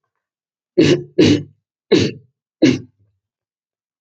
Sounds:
Throat clearing